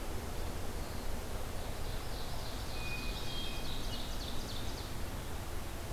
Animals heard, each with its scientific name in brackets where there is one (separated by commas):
Hermit Thrush (Catharus guttatus), Ovenbird (Seiurus aurocapilla)